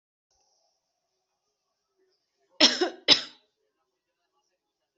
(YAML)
expert_labels:
- quality: good
  cough_type: dry
  dyspnea: false
  wheezing: false
  stridor: false
  choking: false
  congestion: false
  nothing: true
  diagnosis: healthy cough
  severity: pseudocough/healthy cough
age: 39
gender: female
respiratory_condition: false
fever_muscle_pain: false
status: symptomatic